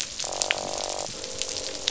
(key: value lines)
label: biophony, croak
recorder: SoundTrap 500